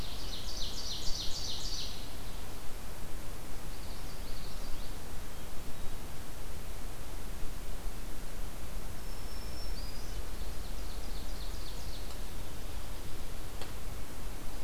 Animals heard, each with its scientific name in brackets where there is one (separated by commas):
Common Yellowthroat (Geothlypis trichas), Black-throated Green Warbler (Setophaga virens), Ovenbird (Seiurus aurocapilla)